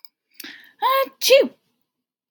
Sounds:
Sneeze